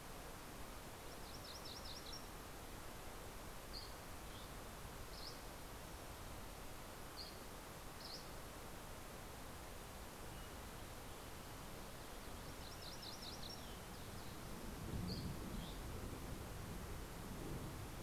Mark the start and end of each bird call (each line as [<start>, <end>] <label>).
[0.00, 2.70] MacGillivray's Warbler (Geothlypis tolmiei)
[3.20, 9.10] Dusky Flycatcher (Empidonax oberholseri)
[12.10, 14.10] MacGillivray's Warbler (Geothlypis tolmiei)
[14.40, 16.50] Dusky Flycatcher (Empidonax oberholseri)